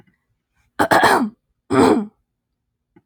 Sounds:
Throat clearing